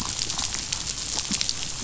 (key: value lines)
label: biophony, chatter
recorder: SoundTrap 500